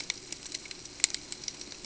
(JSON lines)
{"label": "ambient", "recorder": "HydroMoth"}